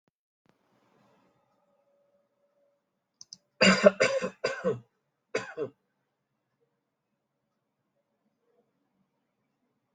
{"expert_labels": [{"quality": "ok", "cough_type": "dry", "dyspnea": false, "wheezing": false, "stridor": false, "choking": false, "congestion": false, "nothing": true, "diagnosis": "COVID-19", "severity": "mild"}], "gender": "female", "respiratory_condition": false, "fever_muscle_pain": false, "status": "healthy"}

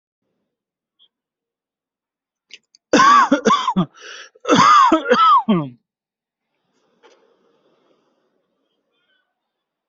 {"expert_labels": [{"quality": "good", "cough_type": "dry", "dyspnea": false, "wheezing": false, "stridor": false, "choking": false, "congestion": false, "nothing": true, "diagnosis": "healthy cough", "severity": "pseudocough/healthy cough"}], "age": 33, "gender": "male", "respiratory_condition": true, "fever_muscle_pain": false, "status": "COVID-19"}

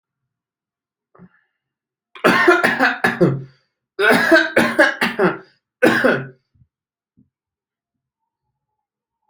{"expert_labels": [{"quality": "ok", "cough_type": "dry", "dyspnea": false, "wheezing": false, "stridor": false, "choking": false, "congestion": false, "nothing": true, "diagnosis": "COVID-19", "severity": "mild"}, {"quality": "good", "cough_type": "dry", "dyspnea": false, "wheezing": false, "stridor": false, "choking": false, "congestion": false, "nothing": true, "diagnosis": "COVID-19", "severity": "mild"}, {"quality": "good", "cough_type": "dry", "dyspnea": false, "wheezing": false, "stridor": false, "choking": false, "congestion": false, "nothing": true, "diagnosis": "upper respiratory tract infection", "severity": "mild"}, {"quality": "good", "cough_type": "dry", "dyspnea": false, "wheezing": false, "stridor": false, "choking": false, "congestion": false, "nothing": true, "diagnosis": "healthy cough", "severity": "pseudocough/healthy cough"}], "age": 35, "gender": "male", "respiratory_condition": true, "fever_muscle_pain": false, "status": "COVID-19"}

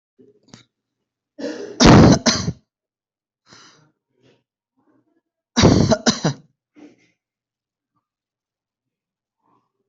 {"expert_labels": [{"quality": "poor", "cough_type": "unknown", "dyspnea": false, "wheezing": false, "stridor": false, "choking": false, "congestion": false, "nothing": true, "diagnosis": "healthy cough", "severity": "pseudocough/healthy cough"}], "age": 27, "gender": "male", "respiratory_condition": false, "fever_muscle_pain": false, "status": "symptomatic"}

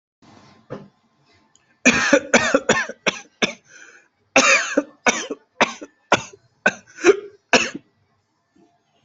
{"expert_labels": [{"quality": "ok", "cough_type": "dry", "dyspnea": false, "wheezing": false, "stridor": false, "choking": true, "congestion": false, "nothing": false, "diagnosis": "COVID-19", "severity": "severe"}], "age": 38, "gender": "male", "respiratory_condition": false, "fever_muscle_pain": false, "status": "healthy"}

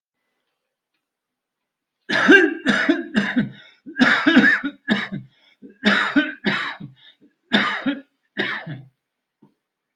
{"expert_labels": [{"quality": "good", "cough_type": "dry", "dyspnea": false, "wheezing": false, "stridor": false, "choking": false, "congestion": false, "nothing": true, "diagnosis": "COVID-19", "severity": "severe"}], "age": 78, "gender": "male", "respiratory_condition": true, "fever_muscle_pain": false, "status": "symptomatic"}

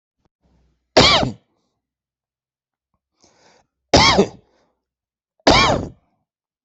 {"expert_labels": [{"quality": "ok", "cough_type": "dry", "dyspnea": false, "wheezing": false, "stridor": false, "choking": false, "congestion": false, "nothing": true, "diagnosis": "COVID-19", "severity": "mild"}], "age": 60, "gender": "male", "respiratory_condition": false, "fever_muscle_pain": true, "status": "symptomatic"}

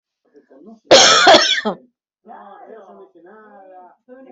{"expert_labels": [{"quality": "good", "cough_type": "wet", "dyspnea": false, "wheezing": false, "stridor": false, "choking": false, "congestion": false, "nothing": true, "diagnosis": "upper respiratory tract infection", "severity": "mild"}], "age": 47, "gender": "female", "respiratory_condition": true, "fever_muscle_pain": false, "status": "symptomatic"}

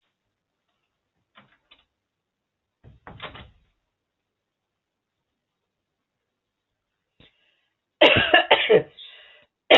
{"expert_labels": [{"quality": "good", "cough_type": "unknown", "dyspnea": false, "wheezing": false, "stridor": false, "choking": false, "congestion": false, "nothing": true, "diagnosis": "upper respiratory tract infection", "severity": "mild"}]}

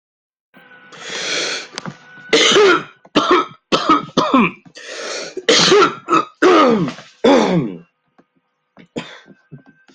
{"expert_labels": [{"quality": "good", "cough_type": "wet", "dyspnea": false, "wheezing": false, "stridor": false, "choking": false, "congestion": false, "nothing": true, "diagnosis": "lower respiratory tract infection", "severity": "severe"}], "age": 53, "gender": "male", "respiratory_condition": true, "fever_muscle_pain": true, "status": "symptomatic"}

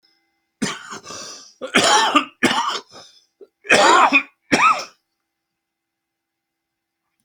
{"expert_labels": [{"quality": "good", "cough_type": "wet", "dyspnea": false, "wheezing": false, "stridor": false, "choking": false, "congestion": false, "nothing": true, "diagnosis": "lower respiratory tract infection", "severity": "mild"}], "age": 65, "gender": "male", "respiratory_condition": true, "fever_muscle_pain": false, "status": "symptomatic"}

